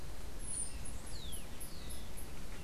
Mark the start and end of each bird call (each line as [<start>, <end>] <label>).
[0.00, 2.64] Chestnut-capped Brushfinch (Arremon brunneinucha)